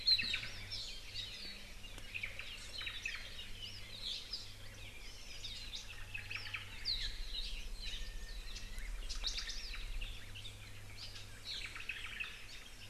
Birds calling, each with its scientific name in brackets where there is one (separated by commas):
Iiwi (Drepanis coccinea), Northern Cardinal (Cardinalis cardinalis), Apapane (Himatione sanguinea), Japanese Bush Warbler (Horornis diphone), Hawaii Amakihi (Chlorodrepanis virens), Omao (Myadestes obscurus)